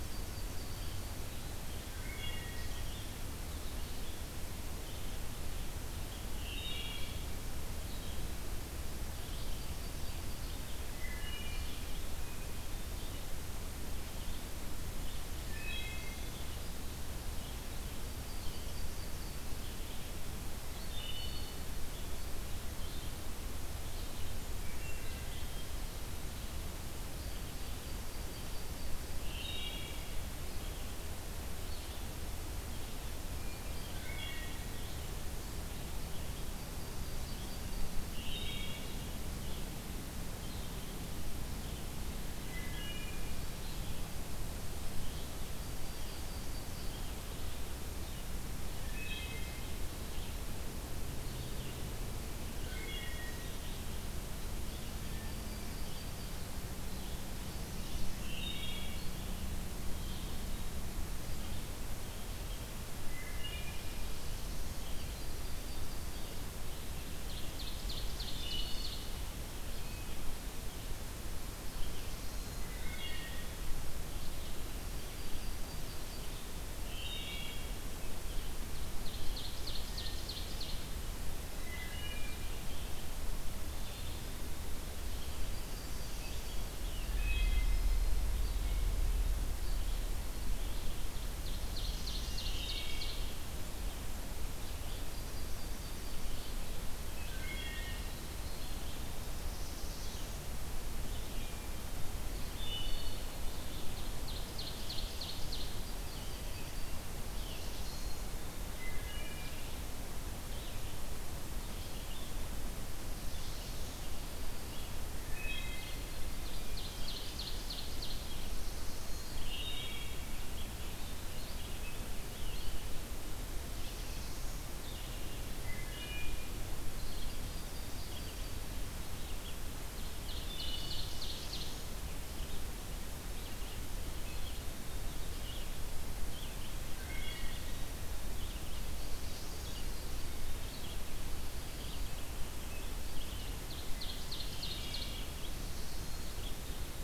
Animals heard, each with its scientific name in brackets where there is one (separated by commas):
Yellow-rumped Warbler (Setophaga coronata), Black-throated Blue Warbler (Setophaga caerulescens), Scarlet Tanager (Piranga olivacea), Wood Thrush (Hylocichla mustelina), Red-eyed Vireo (Vireo olivaceus), Ovenbird (Seiurus aurocapilla)